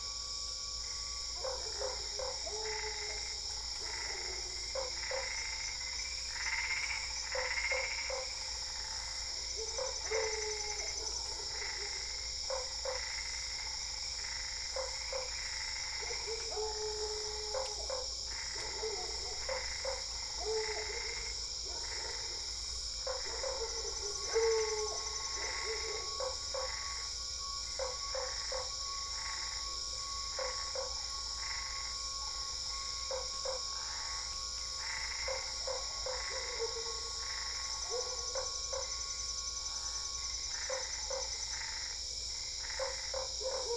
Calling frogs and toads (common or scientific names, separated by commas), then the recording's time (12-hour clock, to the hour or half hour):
Usina tree frog, Boana albopunctata
~8pm